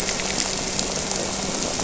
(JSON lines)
{"label": "anthrophony, boat engine", "recorder": "SoundTrap 300"}
{"label": "biophony", "recorder": "SoundTrap 300"}